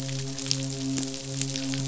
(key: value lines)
label: biophony, midshipman
recorder: SoundTrap 500